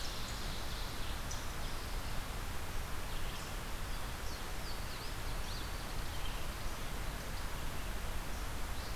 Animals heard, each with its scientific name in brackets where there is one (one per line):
Red-eyed Vireo (Vireo olivaceus)
Louisiana Waterthrush (Parkesia motacilla)
unknown mammal